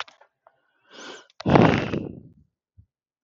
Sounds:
Sigh